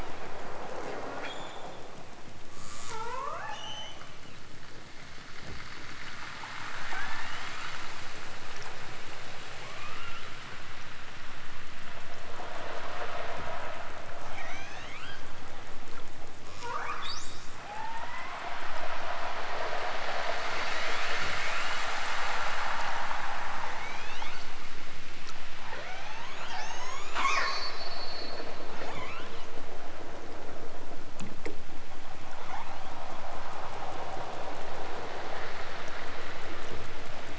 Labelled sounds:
0.6	1.7	killer whale, southern Alaska resident, 0.28 to 7.3 kHz
2.4	4.1	killer whale, southern Alaska resident, 0.23 to 8.0 kHz
6.5	7.7	killer whale, southern Alaska resident, 0.83 to 4.3 kHz
9.6	10.5	killer whale, southern Alaska resident, 0.69 to 5.3 kHz
14.2	15.3	killer whale, southern Alaska resident, 0.69 to 7.6 kHz
16.5	18.4	killer whale, southern Alaska resident, 0.28 to 8.0 kHz
20.6	21.9	killer whale, southern Alaska resident, 1.6 to 5.4 kHz
23.6	24.6	killer whale, southern Alaska resident, 0.97 to 8.0 kHz
25.6	29.6	killer whale, southern Alaska resident, 0.18 to 8.0 kHz
32.4	33.2	killer whale, southern Alaska resident, 0.78 to 8.0 kHz

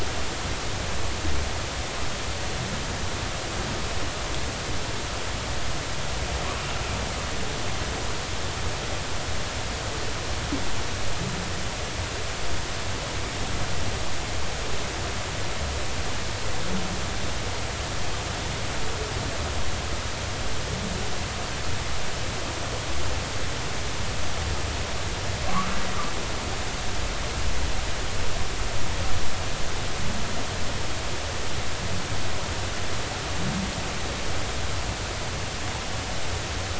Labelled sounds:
25.5	25.8	humpback whale, 0.96 to 1.4 kHz

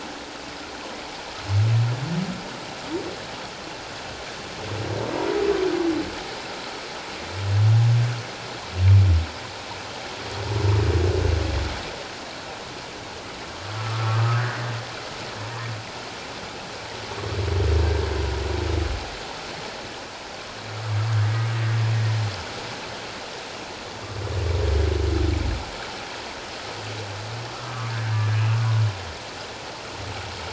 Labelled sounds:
13.8	14.6	humpback whale, 1.1 to 1.9 kHz
27.5	28.4	humpback whale, 1.0 to 1.8 kHz

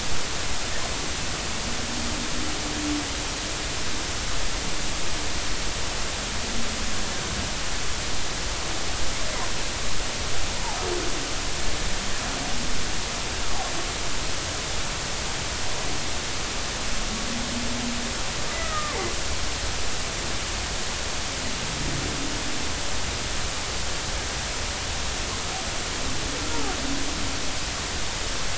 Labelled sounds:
18.5	19.0	humpback whale, 1.0 to 2.0 kHz

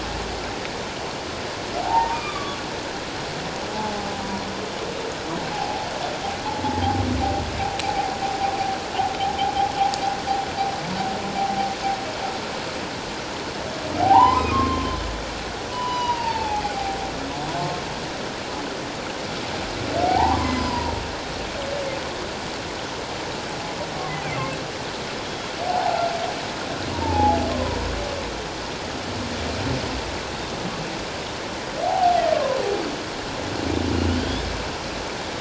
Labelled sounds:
1.8	2.6	humpback whale, 0.78 to 3.6 kHz
3.7	4.1	humpback whale, 0.78 to 0.91 kHz
5.5	5.9	humpback whale, 0.78 to 0.91 kHz
7.9	8.1	humpback whale, 0.78 to 0.88 kHz
14.0	14.9	humpback whale, 0.78 to 2.1 kHz
15.7	17.0	humpback whale, 0.78 to 5.0 kHz
20.0	20.9	humpback whale, 0.78 to 5.2 kHz
24.3	24.5	humpback whale, 2.0 to 2.2 kHz
25.7	26.0	humpback whale, 0.78 to 1.0 kHz
26.9	27.8	humpback whale, 0.78 to 1.2 kHz
30.3	30.6	humpback whale, 3.5 to 3.8 kHz
31.8	32.2	humpback whale, 0.78 to 0.91 kHz
34.2	34.4	humpback whale, 3.1 to 3.6 kHz

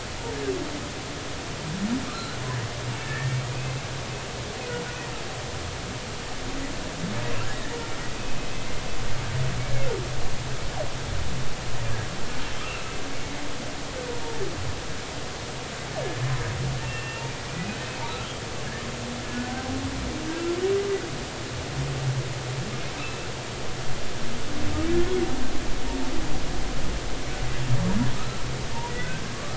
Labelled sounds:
2.1	2.4	humpback whale, 1.1 to 4.3 kHz
3.0	3.7	humpback whale, 1.7 to 2.7 kHz
7.5	7.8	humpback whale, 1.7 to 2.0 kHz
8.5	8.8	humpback whale, 2.0 to 2.2 kHz
12.6	13.0	humpback whale, 2.6 to 2.9 kHz
16.8	17.8	humpback whale, 1.8 to 2.8 kHz
19.2	19.5	humpback whale, 1.7 to 1.8 kHz
28.1	28.4	humpback whale, 1.2 to 1.4 kHz
29.3	29.5	humpback whale, 1.1 to 1.3 kHz

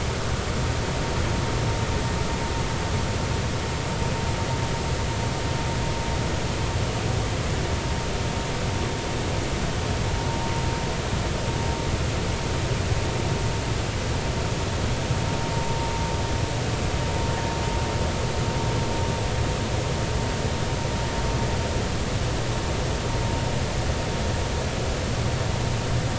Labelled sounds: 15.5	15.9	vessel noise, 0.86 to 0.99 kHz

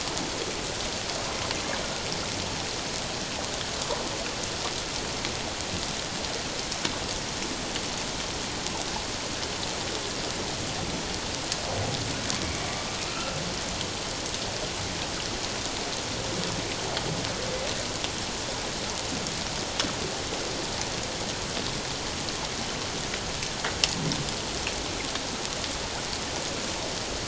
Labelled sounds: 12.4	13.4	humpback whale, 1.2 to 2.3 kHz

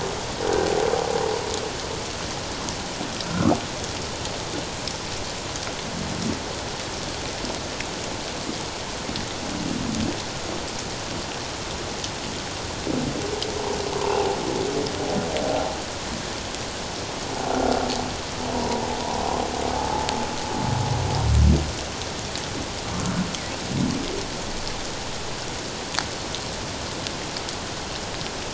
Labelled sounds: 3.3	3.6	humpback whale, 1.1 to 1.5 kHz
14.0	14.3	humpback whale, 0.78 to 1.1 kHz
18.5	18.8	humpback whale, 0.91 to 1.0 kHz

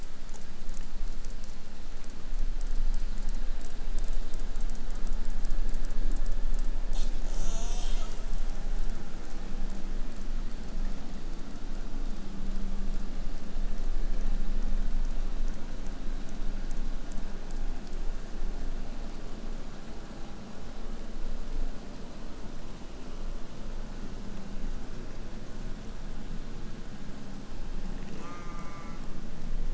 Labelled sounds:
6.9	8.3	killer whale, 0.36 to 8.0 kHz
27.9	29.2	killer whale, southern resident, J pod, call S04, 0 to 8.0 kHz

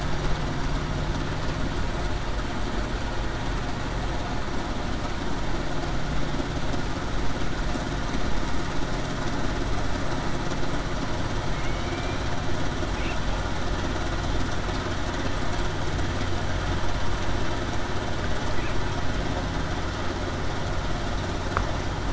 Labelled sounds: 11.8	12.2	killer whale, Bigg's (transient), 2.3 to 2.5 kHz

